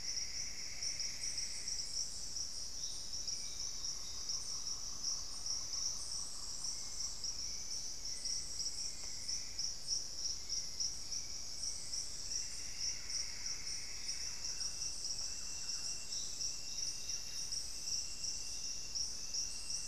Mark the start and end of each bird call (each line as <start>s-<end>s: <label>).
0.0s-2.4s: Plumbeous Antbird (Myrmelastes hyperythrus)
0.7s-1.4s: Plumbeous Pigeon (Patagioenas plumbea)
3.2s-12.5s: Hauxwell's Thrush (Turdus hauxwelli)
11.8s-15.2s: Plumbeous Antbird (Myrmelastes hyperythrus)
12.6s-16.1s: Thrush-like Wren (Campylorhynchus turdinus)
16.5s-17.8s: Buff-breasted Wren (Cantorchilus leucotis)